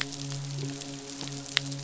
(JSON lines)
{"label": "biophony, midshipman", "recorder": "SoundTrap 500"}